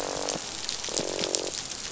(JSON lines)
{"label": "biophony, croak", "recorder": "SoundTrap 500"}